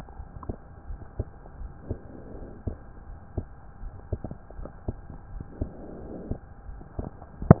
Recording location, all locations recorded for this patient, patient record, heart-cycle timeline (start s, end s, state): pulmonary valve (PV)
aortic valve (AV)+pulmonary valve (PV)+tricuspid valve (TV)
#Age: Child
#Sex: Male
#Height: 130.0 cm
#Weight: 38.5 kg
#Pregnancy status: False
#Murmur: Absent
#Murmur locations: nan
#Most audible location: nan
#Systolic murmur timing: nan
#Systolic murmur shape: nan
#Systolic murmur grading: nan
#Systolic murmur pitch: nan
#Systolic murmur quality: nan
#Diastolic murmur timing: nan
#Diastolic murmur shape: nan
#Diastolic murmur grading: nan
#Diastolic murmur pitch: nan
#Diastolic murmur quality: nan
#Outcome: Normal
#Campaign: 2015 screening campaign
0.00	0.16	unannotated
0.16	0.28	S1
0.28	0.44	systole
0.44	0.56	S2
0.56	0.87	diastole
0.87	1.00	S1
1.00	1.14	systole
1.14	1.28	S2
1.28	1.60	diastole
1.60	1.72	S1
1.72	1.88	systole
1.88	2.00	S2
2.00	2.36	diastole
2.36	2.50	S1
2.50	2.66	systole
2.66	2.78	S2
2.78	3.07	diastole
3.07	3.20	S1
3.20	3.36	systole
3.36	3.46	S2
3.46	3.82	diastole
3.82	3.94	S1
3.94	4.08	systole
4.08	4.22	S2
4.22	4.58	diastole
4.58	4.70	S1
4.70	4.88	systole
4.88	4.98	S2
4.98	5.32	diastole
5.32	5.46	S1
5.46	5.60	systole
5.60	5.72	S2
5.72	6.00	diastole
6.00	6.12	S1
6.12	6.26	systole
6.26	6.38	S2
6.38	6.68	diastole
6.68	6.82	S1
6.82	6.98	systole
6.98	7.08	S2
7.08	7.60	unannotated